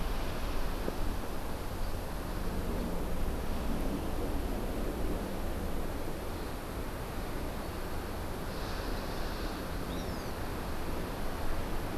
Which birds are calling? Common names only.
Hawaii Amakihi